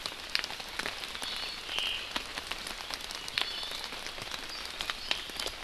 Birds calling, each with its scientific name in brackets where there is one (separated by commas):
Omao (Myadestes obscurus), Iiwi (Drepanis coccinea)